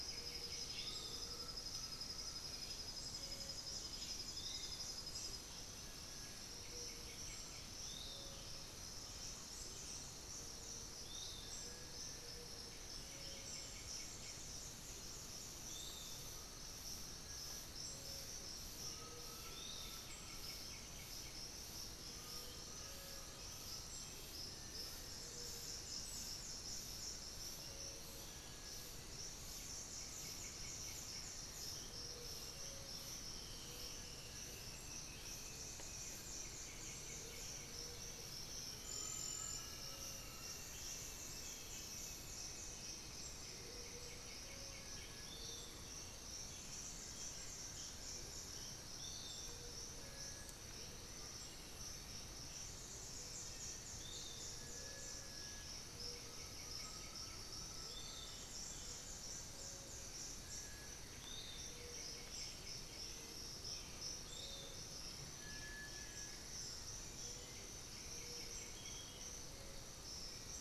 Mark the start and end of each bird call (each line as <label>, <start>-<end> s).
White-winged Becard (Pachyramphus polychopterus), 0.0-1.0 s
Black-billed Thrush (Turdus ignobilis), 0.0-5.0 s
Piratic Flycatcher (Legatus leucophaius), 0.0-20.3 s
Undulated Tinamou (Crypturellus undulatus), 0.7-2.7 s
Little Tinamou (Crypturellus soui), 5.7-6.4 s
White-winged Becard (Pachyramphus polychopterus), 5.7-7.8 s
unidentified bird, 8.2-10.1 s
Little Tinamou (Crypturellus soui), 11.2-12.5 s
White-winged Becard (Pachyramphus polychopterus), 12.4-14.5 s
Undulated Tinamou (Crypturellus undulatus), 14.9-24.2 s
Little Tinamou (Crypturellus soui), 17.1-17.6 s
White-winged Becard (Pachyramphus polychopterus), 19.3-21.4 s
unidentified bird, 22.2-24.6 s
Little Tinamou (Crypturellus soui), 22.6-28.9 s
Plain-winged Antshrike (Thamnophilus schistaceus), 25.0-27.7 s
White-winged Becard (Pachyramphus polychopterus), 29.4-31.5 s
Great Antshrike (Taraba major), 30.5-34.8 s
Elegant Woodcreeper (Xiphorhynchus elegans), 33.1-45.0 s
White-winged Becard (Pachyramphus polychopterus), 36.1-37.8 s
Amazonian Motmot (Momotus momota), 37.0-37.5 s
Undulated Tinamou (Crypturellus undulatus), 38.8-41.1 s
Little Tinamou (Crypturellus soui), 39.2-39.8 s
White-winged Becard (Pachyramphus polychopterus), 43.3-45.3 s
Great Antshrike (Taraba major), 43.6-47.0 s
Piratic Flycatcher (Legatus leucophaius), 45.1-64.9 s
unidentified bird, 46.3-49.0 s
Plain-winged Antshrike (Thamnophilus schistaceus), 47.2-49.8 s
Little Tinamou (Crypturellus soui), 49.9-50.6 s
Little Tinamou (Crypturellus soui), 54.3-70.6 s
White-winged Becard (Pachyramphus polychopterus), 55.5-63.3 s
Undulated Tinamou (Crypturellus undulatus), 56.0-58.4 s
Plain-winged Antshrike (Thamnophilus schistaceus), 58.8-61.4 s
Black-billed Thrush (Turdus ignobilis), 63.6-68.2 s
White-winged Becard (Pachyramphus polychopterus), 67.4-69.5 s